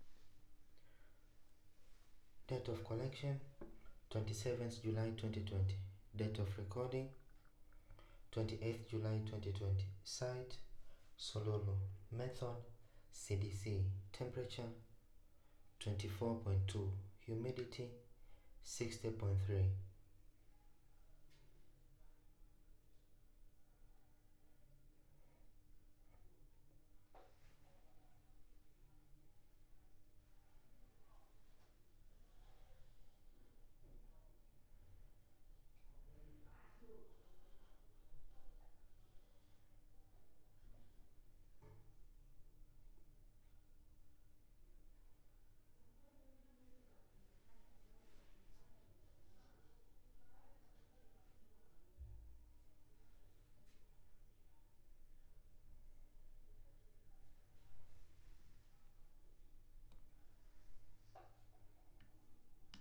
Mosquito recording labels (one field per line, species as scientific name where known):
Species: no mosquito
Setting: cup